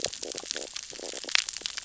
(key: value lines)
label: biophony, stridulation
recorder: SoundTrap 600 or HydroMoth